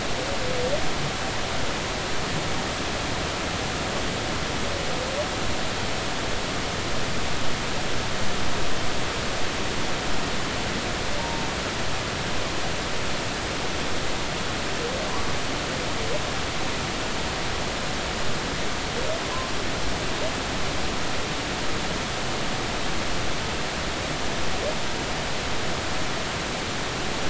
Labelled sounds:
11.2	11.5	humpback whale, 0.86 to 0.96 kHz

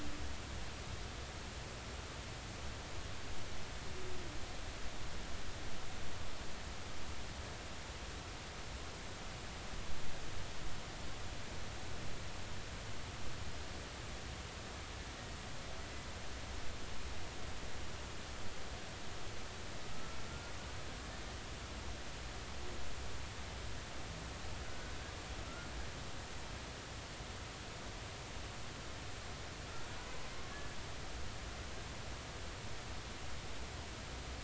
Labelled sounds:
19.9	20.5	humpback whale, 1.2 to 1.4 kHz

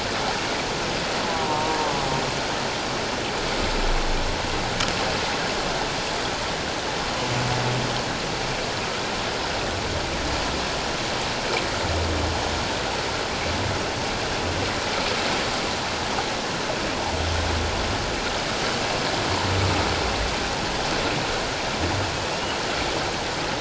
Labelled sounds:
1.4	1.8	humpback whale, 0.88 to 0.97 kHz

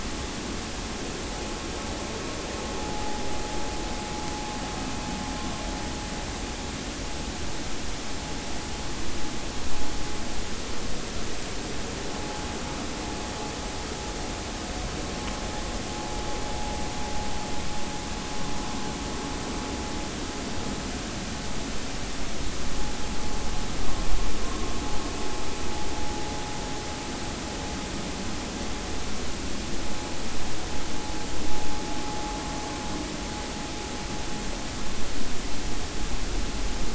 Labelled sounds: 2.9	3.2	vessel noise, 0.80 to 0.90 kHz

